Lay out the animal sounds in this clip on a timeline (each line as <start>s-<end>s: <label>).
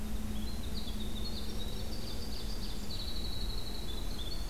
0.0s-4.5s: Winter Wren (Troglodytes hiemalis)
1.6s-3.0s: Ovenbird (Seiurus aurocapilla)